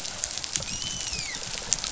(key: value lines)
label: biophony, dolphin
recorder: SoundTrap 500